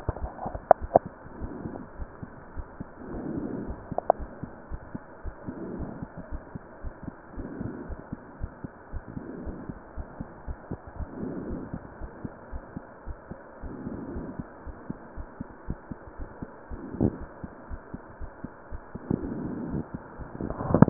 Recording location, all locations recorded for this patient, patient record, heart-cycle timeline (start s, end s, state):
aortic valve (AV)
aortic valve (AV)+pulmonary valve (PV)+tricuspid valve (TV)
#Age: Child
#Sex: Female
#Height: 132.0 cm
#Weight: 41.1 kg
#Pregnancy status: False
#Murmur: Absent
#Murmur locations: nan
#Most audible location: nan
#Systolic murmur timing: nan
#Systolic murmur shape: nan
#Systolic murmur grading: nan
#Systolic murmur pitch: nan
#Systolic murmur quality: nan
#Diastolic murmur timing: nan
#Diastolic murmur shape: nan
#Diastolic murmur grading: nan
#Diastolic murmur pitch: nan
#Diastolic murmur quality: nan
#Outcome: Normal
#Campaign: 2015 screening campaign
0.00	7.87	unannotated
7.87	7.95	S1
7.95	8.11	systole
8.11	8.16	S2
8.16	8.38	diastole
8.38	8.48	S1
8.48	8.62	systole
8.62	8.69	S2
8.69	8.91	diastole
8.91	9.00	S1
9.00	9.14	systole
9.14	9.21	S2
9.21	9.45	diastole
9.45	9.52	S1
9.52	9.66	systole
9.66	9.74	S2
9.74	9.95	diastole
9.95	10.03	S1
10.03	10.18	systole
10.18	10.23	S2
10.23	10.46	diastole
10.46	10.53	S1
10.53	10.70	systole
10.70	10.77	S2
10.77	10.98	diastole
10.98	11.06	S1
11.06	20.90	unannotated